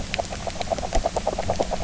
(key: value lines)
label: biophony, grazing
recorder: SoundTrap 300